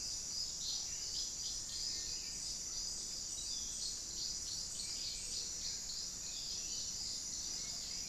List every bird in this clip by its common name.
Black-billed Thrush, Little Tinamou, Buff-throated Saltator